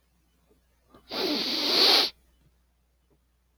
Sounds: Sniff